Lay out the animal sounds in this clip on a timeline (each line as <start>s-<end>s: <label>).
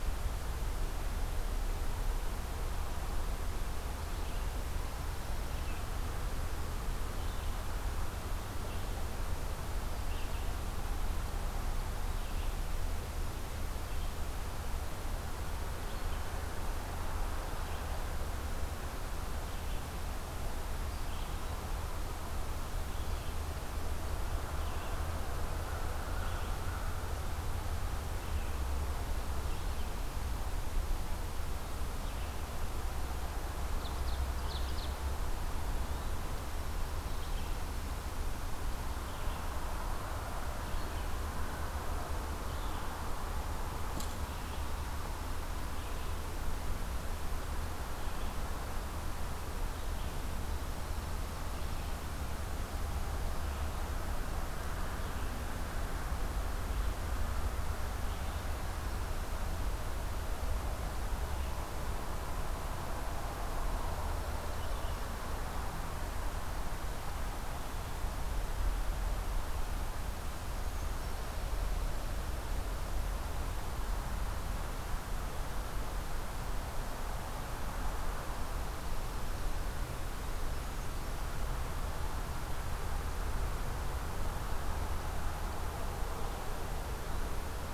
4.1s-26.7s: Red-eyed Vireo (Vireo olivaceus)
29.5s-65.1s: Red-eyed Vireo (Vireo olivaceus)
33.6s-35.0s: Ovenbird (Seiurus aurocapilla)
70.2s-71.2s: Brown Creeper (Certhia americana)